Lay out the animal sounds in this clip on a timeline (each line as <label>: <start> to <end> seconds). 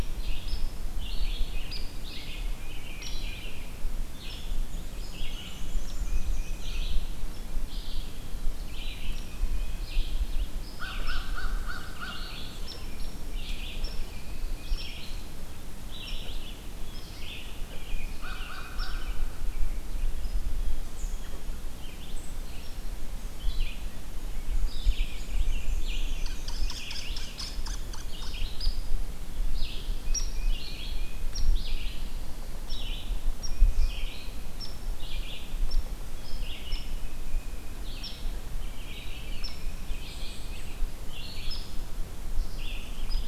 Red-eyed Vireo (Vireo olivaceus): 0.0 to 26.2 seconds
Hairy Woodpecker (Dryobates villosus): 0.4 to 0.6 seconds
American Robin (Turdus migratorius): 1.1 to 3.8 seconds
Hairy Woodpecker (Dryobates villosus): 1.7 to 1.9 seconds
Hairy Woodpecker (Dryobates villosus): 2.9 to 3.2 seconds
Hairy Woodpecker (Dryobates villosus): 4.2 to 4.4 seconds
Black-and-white Warbler (Mniotilta varia): 4.3 to 6.9 seconds
Hairy Woodpecker (Dryobates villosus): 5.8 to 6.0 seconds
Tufted Titmouse (Baeolophus bicolor): 6.0 to 7.0 seconds
Hairy Woodpecker (Dryobates villosus): 7.3 to 7.5 seconds
Hairy Woodpecker (Dryobates villosus): 9.1 to 9.3 seconds
American Crow (Corvus brachyrhynchos): 10.7 to 12.4 seconds
Hairy Woodpecker (Dryobates villosus): 12.6 to 12.8 seconds
Pine Warbler (Setophaga pinus): 13.7 to 14.9 seconds
Tufted Titmouse (Baeolophus bicolor): 13.9 to 14.8 seconds
Hairy Woodpecker (Dryobates villosus): 14.7 to 14.9 seconds
Hairy Woodpecker (Dryobates villosus): 16.0 to 16.2 seconds
Hairy Woodpecker (Dryobates villosus): 16.8 to 17.1 seconds
Tufted Titmouse (Baeolophus bicolor): 17.6 to 19.1 seconds
American Crow (Corvus brachyrhynchos): 18.1 to 19.2 seconds
Hairy Woodpecker (Dryobates villosus): 18.7 to 18.9 seconds
Hairy Woodpecker (Dryobates villosus): 22.5 to 22.7 seconds
Black-and-white Warbler (Mniotilta varia): 24.3 to 26.3 seconds
American Robin (Turdus migratorius): 24.8 to 27.4 seconds
Hairy Woodpecker (Dryobates villosus): 26.0 to 28.1 seconds
Red-eyed Vireo (Vireo olivaceus): 27.9 to 43.3 seconds
Hairy Woodpecker (Dryobates villosus): 28.5 to 28.7 seconds
Tufted Titmouse (Baeolophus bicolor): 30.0 to 31.3 seconds
Hairy Woodpecker (Dryobates villosus): 30.1 to 30.3 seconds
Hairy Woodpecker (Dryobates villosus): 31.3 to 31.4 seconds
Pine Warbler (Setophaga pinus): 31.3 to 32.7 seconds
Hairy Woodpecker (Dryobates villosus): 32.6 to 32.8 seconds
Tufted Titmouse (Baeolophus bicolor): 33.3 to 34.0 seconds
Hairy Woodpecker (Dryobates villosus): 33.4 to 33.5 seconds
Hairy Woodpecker (Dryobates villosus): 34.6 to 34.7 seconds
Hairy Woodpecker (Dryobates villosus): 35.7 to 35.9 seconds
Blue Jay (Cyanocitta cristata): 36.1 to 36.6 seconds
Hairy Woodpecker (Dryobates villosus): 36.6 to 36.8 seconds
Tufted Titmouse (Baeolophus bicolor): 36.7 to 37.9 seconds
Hairy Woodpecker (Dryobates villosus): 38.0 to 38.1 seconds
Hairy Woodpecker (Dryobates villosus): 39.4 to 39.5 seconds
Tufted Titmouse (Baeolophus bicolor): 39.5 to 40.9 seconds
Hairy Woodpecker (Dryobates villosus): 41.4 to 41.6 seconds
Hairy Woodpecker (Dryobates villosus): 43.1 to 43.2 seconds